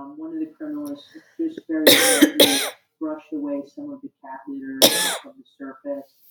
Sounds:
Cough